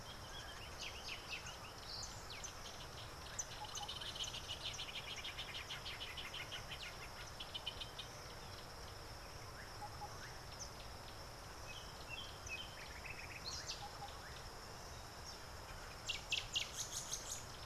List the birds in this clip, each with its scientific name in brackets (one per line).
Northern Brownbul (Phyllastrephus strepitans)